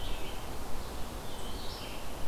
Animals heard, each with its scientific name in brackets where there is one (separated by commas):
Red-eyed Vireo (Vireo olivaceus)